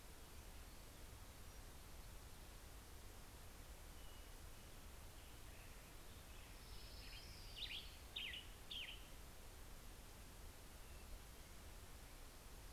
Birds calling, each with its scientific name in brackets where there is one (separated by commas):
Western Tanager (Piranga ludoviciana), Orange-crowned Warbler (Leiothlypis celata)